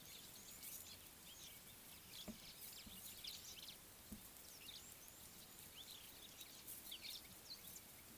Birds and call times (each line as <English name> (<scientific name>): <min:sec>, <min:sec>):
White-browed Sparrow-Weaver (Plocepasser mahali): 0:03.3
Superb Starling (Lamprotornis superbus): 0:05.9